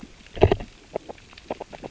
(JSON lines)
{"label": "biophony, grazing", "recorder": "SoundTrap 600 or HydroMoth"}